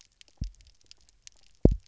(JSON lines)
{"label": "biophony, double pulse", "recorder": "SoundTrap 300"}